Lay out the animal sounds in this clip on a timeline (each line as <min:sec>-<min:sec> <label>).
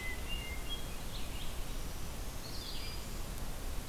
0:00.0-0:01.4 Hermit Thrush (Catharus guttatus)
0:00.0-0:03.9 Red-eyed Vireo (Vireo olivaceus)
0:01.5-0:03.4 Black-throated Green Warbler (Setophaga virens)